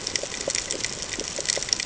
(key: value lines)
label: ambient
recorder: HydroMoth